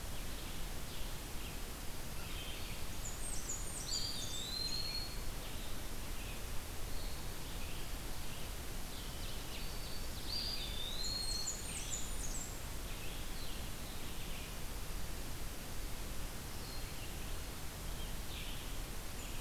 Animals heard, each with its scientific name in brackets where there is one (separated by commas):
Red-eyed Vireo (Vireo olivaceus), Blue-headed Vireo (Vireo solitarius), Ovenbird (Seiurus aurocapilla), Black-throated Green Warbler (Setophaga virens), Blackburnian Warbler (Setophaga fusca), Eastern Wood-Pewee (Contopus virens)